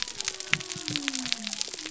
{"label": "biophony", "recorder": "SoundTrap 300"}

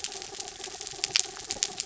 {"label": "anthrophony, mechanical", "recorder": "SoundTrap 300"}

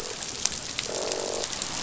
{"label": "biophony, croak", "recorder": "SoundTrap 500"}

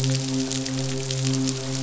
{"label": "biophony, midshipman", "recorder": "SoundTrap 500"}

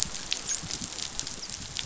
{"label": "biophony, dolphin", "recorder": "SoundTrap 500"}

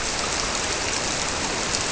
{"label": "biophony", "recorder": "SoundTrap 300"}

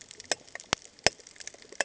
{"label": "ambient", "recorder": "HydroMoth"}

